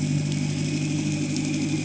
{"label": "anthrophony, boat engine", "recorder": "HydroMoth"}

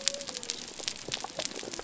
{"label": "biophony", "recorder": "SoundTrap 300"}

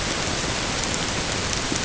{"label": "ambient", "recorder": "HydroMoth"}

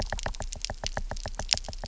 {"label": "biophony, knock", "recorder": "SoundTrap 300"}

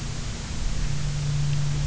{"label": "anthrophony, boat engine", "recorder": "SoundTrap 300"}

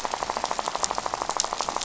{"label": "biophony, rattle", "recorder": "SoundTrap 500"}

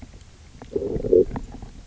{"label": "biophony, low growl", "recorder": "SoundTrap 300"}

